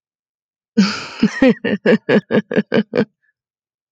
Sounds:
Laughter